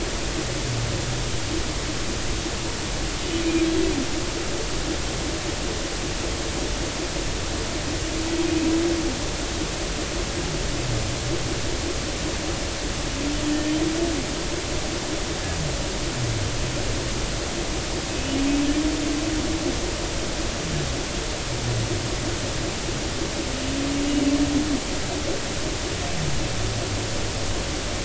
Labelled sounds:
4.4	4.7	humpback whale, 2.4 to 2.5 kHz

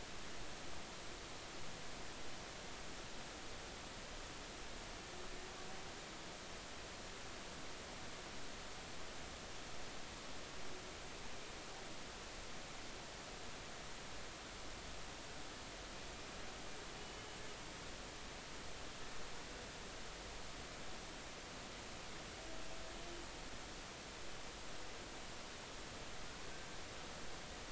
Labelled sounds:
17.0	17.2	humpback whale, 2.9 to 3.0 kHz

